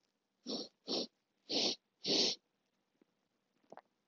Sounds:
Sniff